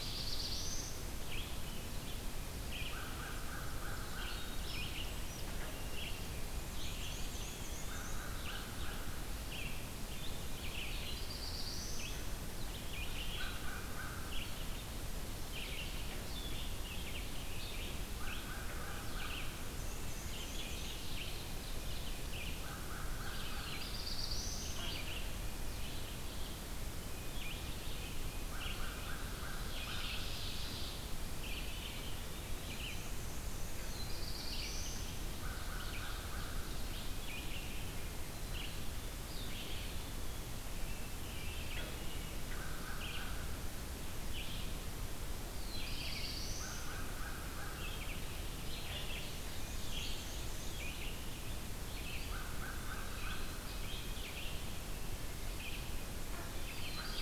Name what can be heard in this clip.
Black-throated Blue Warbler, Red-eyed Vireo, American Crow, Wood Thrush, Black-and-white Warbler, Ovenbird, Eastern Wood-Pewee, Black-capped Chickadee